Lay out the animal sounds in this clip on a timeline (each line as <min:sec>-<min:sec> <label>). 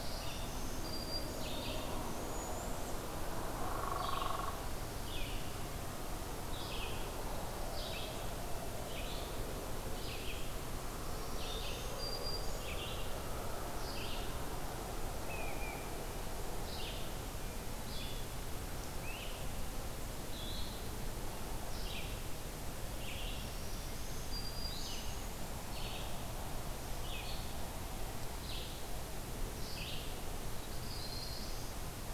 0:00.0-0:01.6 Black-throated Green Warbler (Setophaga virens)
0:00.0-0:12.0 Red-eyed Vireo (Vireo olivaceus)
0:01.8-0:02.9 unidentified call
0:03.5-0:04.7 Hairy Woodpecker (Dryobates villosus)
0:10.9-0:12.9 Black-throated Green Warbler (Setophaga virens)
0:12.5-0:32.1 Red-eyed Vireo (Vireo olivaceus)
0:15.2-0:15.8 Great Crested Flycatcher (Myiarchus crinitus)
0:18.9-0:19.4 Great Crested Flycatcher (Myiarchus crinitus)
0:23.3-0:25.0 Black-throated Green Warbler (Setophaga virens)
0:24.5-0:25.6 unidentified call
0:30.5-0:31.9 Black-throated Blue Warbler (Setophaga caerulescens)